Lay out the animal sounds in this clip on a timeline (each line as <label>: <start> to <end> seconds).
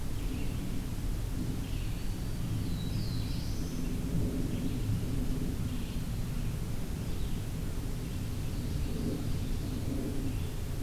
Red-eyed Vireo (Vireo olivaceus): 0.0 to 10.7 seconds
Black-throated Green Warbler (Setophaga virens): 1.7 to 3.0 seconds
Black-throated Blue Warbler (Setophaga caerulescens): 2.4 to 3.8 seconds
Ovenbird (Seiurus aurocapilla): 8.5 to 9.8 seconds